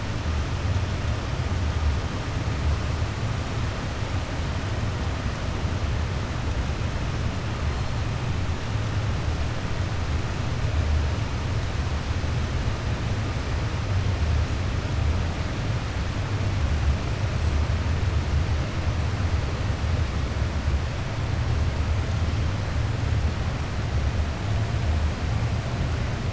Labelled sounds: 17.3	17.8	killer whale, southern resident, 7.6 to 8.0 kHz

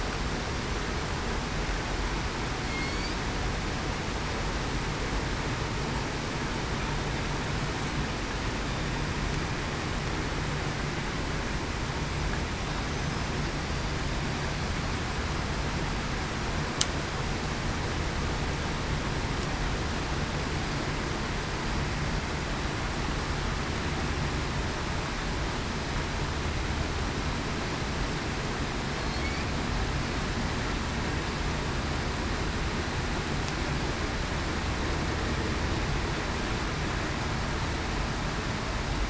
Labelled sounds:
2.7	3.1	killer whale, southern resident, 2.1 to 2.3 kHz
29.0	29.3	killer whale, southern resident, 4.2 to 4.5 kHz

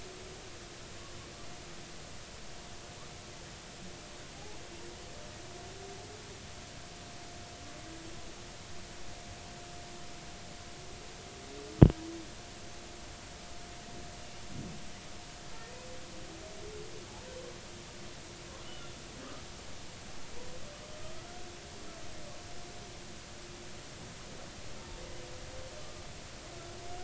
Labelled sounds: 4.3	4.6	humpback whale, 0.80 to 0.99 kHz
18.6	18.9	humpback whale, 2.8 to 3.0 kHz

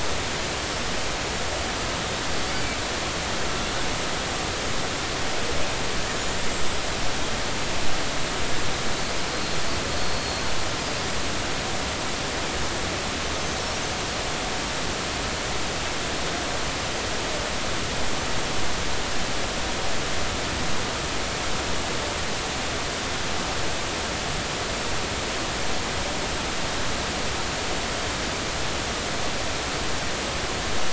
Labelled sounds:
0.7	0.9	killer whale, Bigg's (transient), 5.2 to 5.5 kHz
2.4	2.7	killer whale, Bigg's (transient), 4.4 to 4.8 kHz
6.5	6.8	killer whale, Bigg's (transient), 7.5 to 7.7 kHz
9.3	10.4	killer whale, Bigg's (transient), 4.1 to 4.4 kHz
13.3	13.6	killer whale, Bigg's (transient), 6.2 to 6.3 kHz

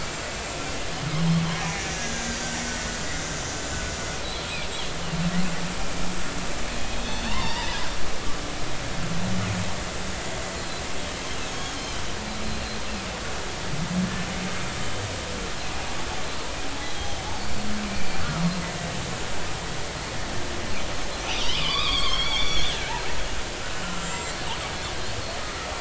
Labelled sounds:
1.9	2.3	killer whale, Bigg's (transient), 1.6 to 1.7 kHz
3.0	3.8	killer whale, Bigg's (transient), 1.9 to 7.1 kHz
6.8	7.7	killer whale, Bigg's (transient), 0.83 to 6.1 kHz
10.5	10.8	killer whale, Bigg's (transient), 4.0 to 4.3 kHz
11.4	12.0	killer whale, Bigg's (transient), 3.0 to 6.6 kHz
16.8	17.3	killer whale, Bigg's (transient), 3.0 to 6.4 kHz
17.8	18.4	killer whale, Bigg's (transient), 1.2 to 2.5 kHz
21.5	22.7	killer whale, Bigg's (transient), 0.99 to 5.8 kHz
23.8	24.3	killer whale, Bigg's (transient), 1.3 to 7.6 kHz

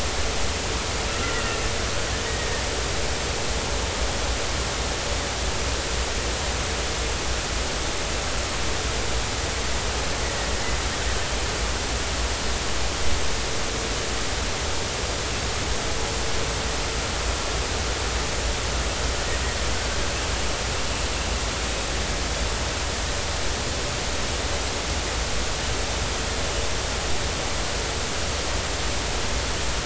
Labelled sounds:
1.1	1.4	killer whale, offshore, 1.3 to 1.5 kHz

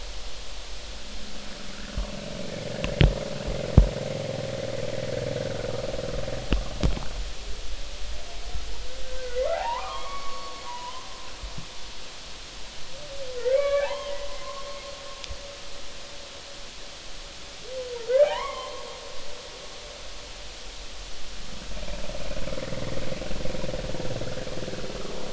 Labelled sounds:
9.2	11.1	humpback whale, 0.80 to 2.3 kHz
13.4	14.1	humpback whale, 0.80 to 3.3 kHz
18.0	18.8	humpback whale, 0.80 to 3.4 kHz
22.7	23.0	humpback whale, 1.8 to 2.1 kHz

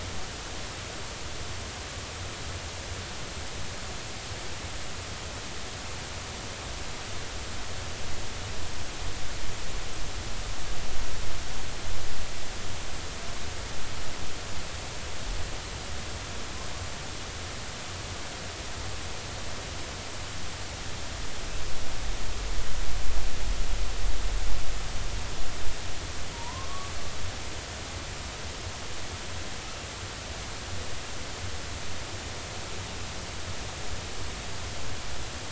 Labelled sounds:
26.3	26.9	killer whale, northern resident, 0.86 to 1.2 kHz

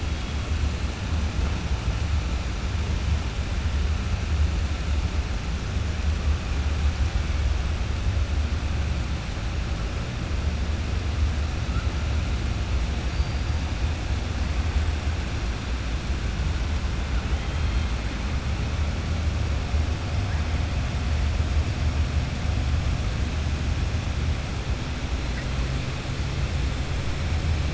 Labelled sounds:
13.0	13.4	killer whale, 4.5 to 4.9 kHz

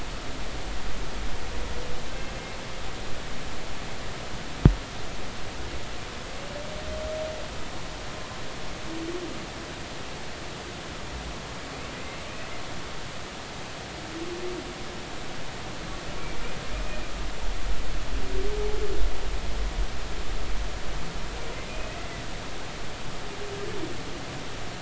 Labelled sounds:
2.1	2.4	humpback whale, 2.6 to 2.7 kHz
21.7	22.0	humpback whale, 2.4 to 2.6 kHz

